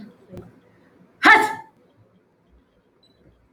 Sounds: Sneeze